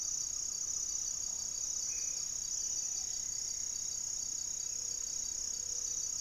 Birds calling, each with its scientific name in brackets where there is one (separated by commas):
Great Antshrike (Taraba major), Black-faced Antthrush (Formicarius analis), unidentified bird, Buff-breasted Wren (Cantorchilus leucotis), Gray-fronted Dove (Leptotila rufaxilla)